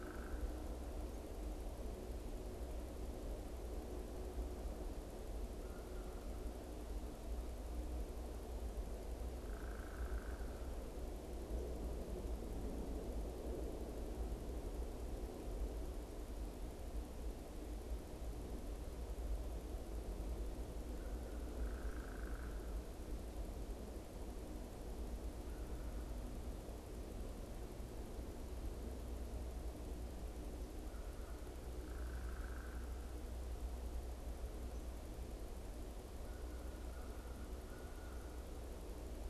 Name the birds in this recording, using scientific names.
Dryobates pubescens, Corvus brachyrhynchos